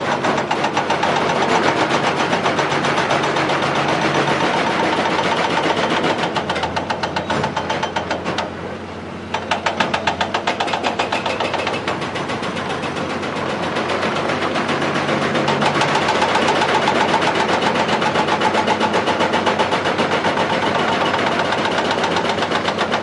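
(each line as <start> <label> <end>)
0.0 A jackhammer is operating. 23.0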